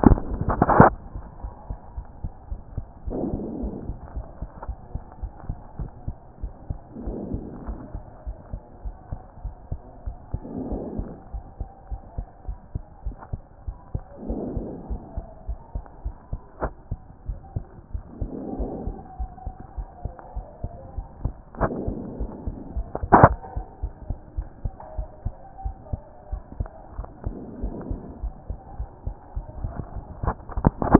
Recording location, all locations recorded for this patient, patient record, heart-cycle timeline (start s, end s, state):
pulmonary valve (PV)
aortic valve (AV)+pulmonary valve (PV)+tricuspid valve (TV)+mitral valve (MV)
#Age: Child
#Sex: Female
#Height: 116.0 cm
#Weight: 17.5 kg
#Pregnancy status: False
#Murmur: Absent
#Murmur locations: nan
#Most audible location: nan
#Systolic murmur timing: nan
#Systolic murmur shape: nan
#Systolic murmur grading: nan
#Systolic murmur pitch: nan
#Systolic murmur quality: nan
#Diastolic murmur timing: nan
#Diastolic murmur shape: nan
#Diastolic murmur grading: nan
#Diastolic murmur pitch: nan
#Diastolic murmur quality: nan
#Outcome: Abnormal
#Campaign: 2014 screening campaign
0.00	4.06	unannotated
4.06	4.14	diastole
4.14	4.26	S1
4.26	4.40	systole
4.40	4.50	S2
4.50	4.68	diastole
4.68	4.78	S1
4.78	4.94	systole
4.94	5.02	S2
5.02	5.22	diastole
5.22	5.32	S1
5.32	5.48	systole
5.48	5.56	S2
5.56	5.78	diastole
5.78	5.90	S1
5.90	6.06	systole
6.06	6.16	S2
6.16	6.42	diastole
6.42	6.52	S1
6.52	6.68	systole
6.68	6.78	S2
6.78	7.04	diastole
7.04	7.18	S1
7.18	7.32	systole
7.32	7.42	S2
7.42	7.66	diastole
7.66	7.78	S1
7.78	7.94	systole
7.94	8.02	S2
8.02	8.26	diastole
8.26	8.36	S1
8.36	8.52	systole
8.52	8.62	S2
8.62	8.84	diastole
8.84	8.96	S1
8.96	9.10	systole
9.10	9.20	S2
9.20	9.44	diastole
9.44	9.54	S1
9.54	9.70	systole
9.70	9.80	S2
9.80	10.06	diastole
10.06	10.16	S1
10.16	10.32	systole
10.32	10.42	S2
10.42	10.68	diastole
10.68	10.82	S1
10.82	10.96	systole
10.96	11.08	S2
11.08	11.34	diastole
11.34	11.44	S1
11.44	11.60	systole
11.60	11.68	S2
11.68	11.90	diastole
11.90	12.00	S1
12.00	12.16	systole
12.16	12.26	S2
12.26	12.48	diastole
12.48	12.58	S1
12.58	12.74	systole
12.74	12.82	S2
12.82	13.04	diastole
13.04	13.16	S1
13.16	13.32	systole
13.32	13.40	S2
13.40	13.66	diastole
13.66	13.76	S1
13.76	13.94	systole
13.94	14.02	S2
14.02	14.26	diastole
14.26	14.42	S1
14.42	14.54	systole
14.54	14.66	S2
14.66	14.90	diastole
14.90	15.00	S1
15.00	15.16	systole
15.16	15.26	S2
15.26	15.48	diastole
15.48	15.58	S1
15.58	15.74	systole
15.74	15.84	S2
15.84	16.04	diastole
16.04	16.16	S1
16.16	16.32	systole
16.32	16.40	S2
16.40	16.62	diastole
16.62	16.74	S1
16.74	16.90	systole
16.90	16.99	S2
16.99	17.28	diastole
17.28	17.38	S1
17.38	17.54	systole
17.54	17.64	S2
17.64	17.92	diastole
17.92	18.04	S1
18.04	18.20	systole
18.20	18.30	S2
18.30	18.58	diastole
18.58	18.70	S1
18.70	18.86	systole
18.86	18.96	S2
18.96	19.20	diastole
19.20	19.30	S1
19.30	19.46	systole
19.46	19.54	S2
19.54	19.78	diastole
19.78	19.88	S1
19.88	20.04	systole
20.04	20.14	S2
20.14	20.36	diastole
20.36	20.46	S1
20.46	20.62	systole
20.62	20.70	S2
20.70	20.96	diastole
20.96	21.06	S1
21.06	21.22	systole
21.22	21.34	S2
21.34	21.60	diastole
21.60	30.99	unannotated